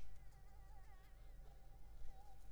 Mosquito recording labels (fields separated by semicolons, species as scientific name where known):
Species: Anopheles arabiensis; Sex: female; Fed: unfed; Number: one; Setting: cup